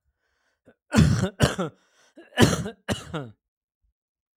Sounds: Cough